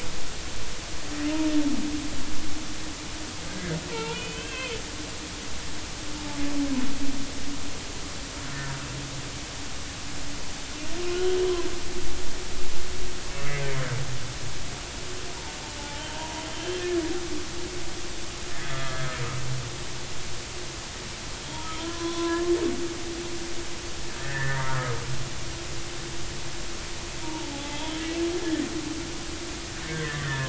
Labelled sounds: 3.9	4.8	humpback whale, 0.86 to 3.5 kHz
15.8	16.8	humpback whale, 0.83 to 3.4 kHz
18.6	19.2	humpback whale, 1.2 to 1.8 kHz
21.9	22.4	humpback whale, 0.96 to 1.1 kHz
24.2	25.0	humpback whale, 1.2 to 2.1 kHz
27.2	28.0	humpback whale, 0.80 to 3.5 kHz
30.2	30.4	humpback whale, 1.7 to 1.9 kHz

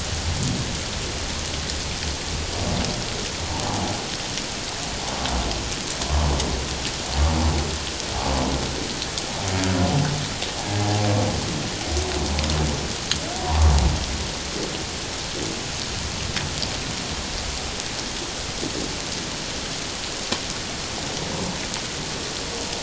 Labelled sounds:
13.4	13.7	humpback whale, 0.84 to 1.2 kHz

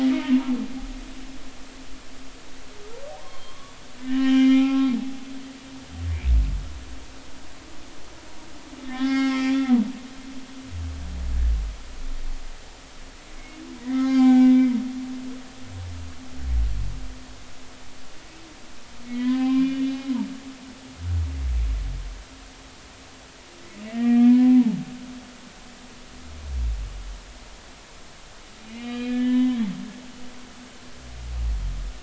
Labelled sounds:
3.1	4.9	humpback whale, 0.80 to 3.3 kHz
8.9	9.9	humpback whale, 0.80 to 5.4 kHz
13.4	14.5	humpback whale, 0.80 to 3.7 kHz
19.1	20.1	humpback whale, 0.96 to 3.8 kHz
23.9	24.6	humpback whale, 0.96 to 2.4 kHz
28.6	29.7	humpback whale, 0.96 to 4.7 kHz

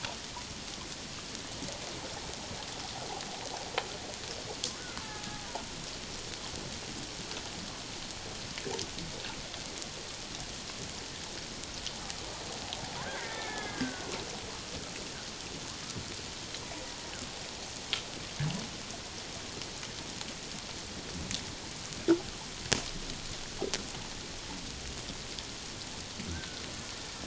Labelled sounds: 5.0	5.3	killer whale, Bigg's (transient), 0.81 to 0.94 kHz
13.0	14.1	killer whale, Bigg's (transient), 1.4 to 2.3 kHz
26.2	26.6	killer whale, Bigg's (transient), 1.3 to 1.6 kHz

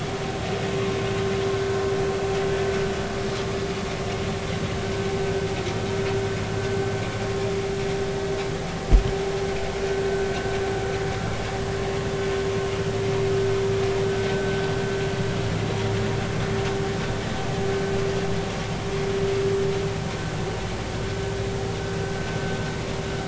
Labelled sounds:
14.3	14.6	vessel noise, 1.5 to 1.6 kHz

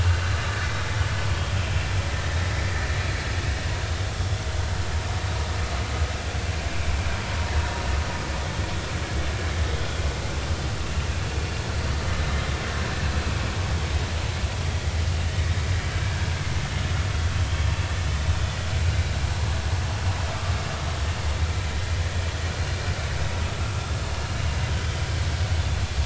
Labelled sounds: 24.7	25.0	vessel noise, 3.0 to 3.3 kHz

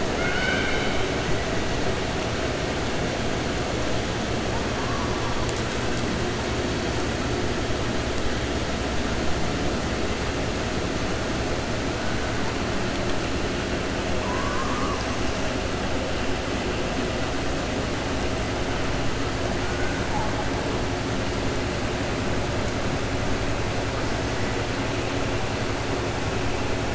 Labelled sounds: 0.1	1.1	killer whale, 1.4 to 5.3 kHz

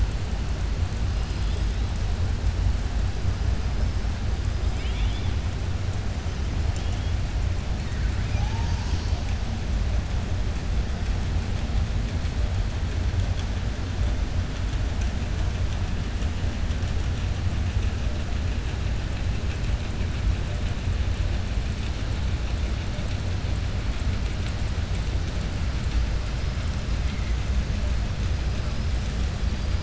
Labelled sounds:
4.6	5.3	killer whale, southern resident, 2.2 to 3.7 kHz

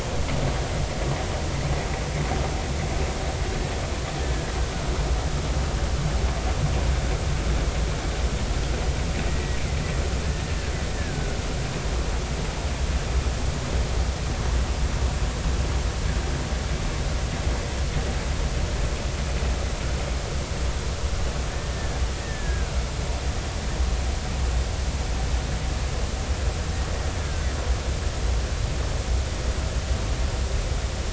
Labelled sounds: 9.3	9.6	killer whale, Bigg's (transient), 1.9 to 2.0 kHz
10.2	10.5	killer whale, Bigg's (transient), 1.6 to 1.9 kHz
10.9	11.4	killer whale, Bigg's (transient), 1.4 to 1.9 kHz
21.7	22.7	killer whale, Bigg's (transient), 1.4 to 1.9 kHz
27.2	27.5	killer whale, Bigg's (transient), 1.5 to 1.7 kHz

